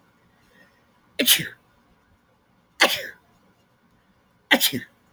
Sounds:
Sneeze